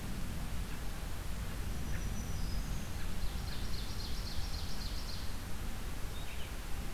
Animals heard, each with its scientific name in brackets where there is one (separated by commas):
Black-throated Green Warbler (Setophaga virens), Ovenbird (Seiurus aurocapilla)